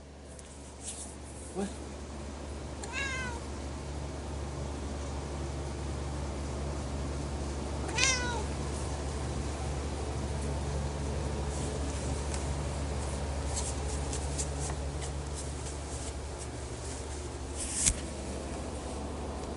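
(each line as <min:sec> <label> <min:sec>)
0:00.0 A rustling sound is heard while a person speaks in the background. 0:02.4
0:02.6 A cat meows once in the background. 0:03.7
0:07.6 A cat meows loudly once nearby. 0:08.6
0:11.5 A soft brushing sound fluctuates indoors. 0:19.6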